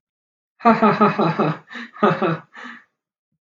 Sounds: Laughter